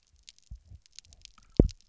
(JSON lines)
{"label": "biophony, double pulse", "recorder": "SoundTrap 300"}